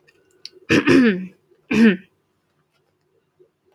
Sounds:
Throat clearing